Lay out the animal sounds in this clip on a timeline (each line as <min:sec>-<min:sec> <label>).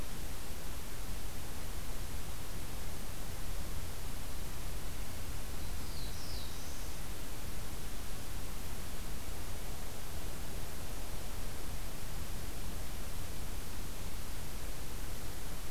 0:05.5-0:06.9 Black-throated Blue Warbler (Setophaga caerulescens)